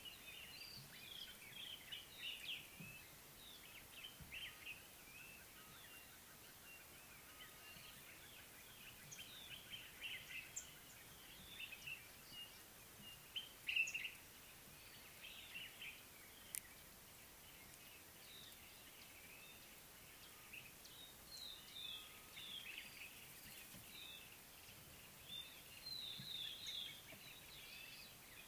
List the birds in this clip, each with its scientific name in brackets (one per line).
White-browed Robin-Chat (Cossypha heuglini)
Common Bulbul (Pycnonotus barbatus)